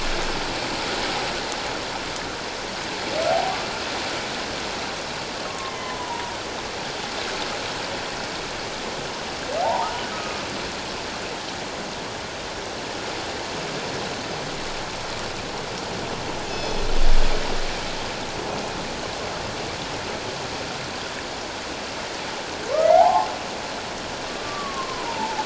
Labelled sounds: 5.5	6.3	humpback whale, 0.88 to 2.2 kHz
9.6	10.4	humpback whale, 0.78 to 1.3 kHz
16.5	16.8	killer whale, northern resident, G clan, call N24ii, 2.5 to 5.2 kHz
22.9	23.3	humpback whale, 0.78 to 1.1 kHz
24.3	25.4	humpback whale, 0.78 to 1.2 kHz

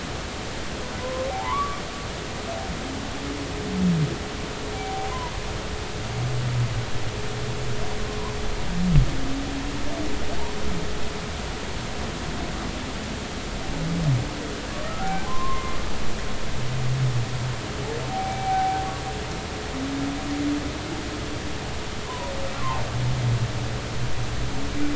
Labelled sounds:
1.0	1.8	humpback whale, 0.80 to 1.2 kHz
4.7	5.1	humpback whale, 0.80 to 0.86 kHz
14.8	15.7	humpback whale, 0.80 to 1.5 kHz
18.1	18.8	humpback whale, 0.80 to 2.4 kHz
22.0	22.8	humpback whale, 0.80 to 1.2 kHz

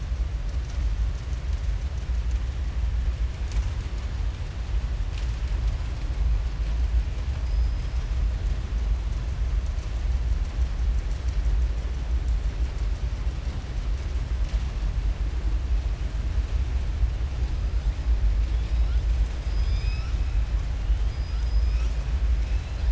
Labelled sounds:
7.4	8.1	killer whale, southern resident, 4.9 to 5.8 kHz
19.3	20.2	killer whale, southern resident, 1.3 to 5.8 kHz
21.0	22.0	killer whale, southern resident, 4.9 to 7.9 kHz

